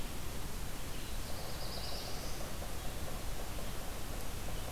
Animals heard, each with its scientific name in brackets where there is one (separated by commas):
Black-throated Blue Warbler (Setophaga caerulescens), Red-eyed Vireo (Vireo olivaceus)